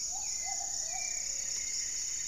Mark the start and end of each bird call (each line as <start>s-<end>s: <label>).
0.0s-2.3s: Goeldi's Antbird (Akletos goeldii)
0.0s-2.3s: Gray-fronted Dove (Leptotila rufaxilla)
0.0s-2.3s: Hauxwell's Thrush (Turdus hauxwelli)
0.0s-2.3s: Plumbeous Pigeon (Patagioenas plumbea)
0.2s-2.3s: Plumbeous Antbird (Myrmelastes hyperythrus)